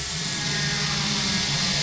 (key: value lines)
label: anthrophony, boat engine
recorder: SoundTrap 500